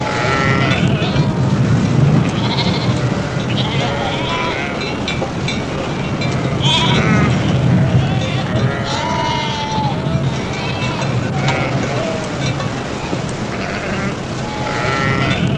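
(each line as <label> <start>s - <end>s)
Wind is blowing. 0.0s - 15.6s
Bells clanking in the background. 0.0s - 15.6s
A herd of sheep bleat. 0.0s - 15.6s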